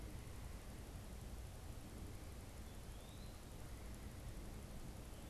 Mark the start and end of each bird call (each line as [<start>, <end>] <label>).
[2.91, 5.29] Eastern Wood-Pewee (Contopus virens)